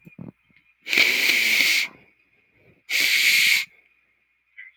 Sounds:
Sniff